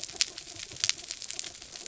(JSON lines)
{"label": "anthrophony, mechanical", "recorder": "SoundTrap 300"}